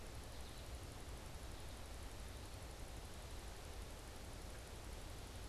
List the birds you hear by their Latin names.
Spinus tristis